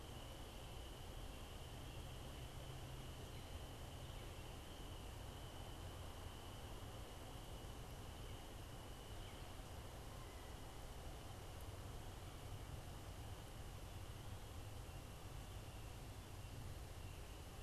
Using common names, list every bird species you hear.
Northern Cardinal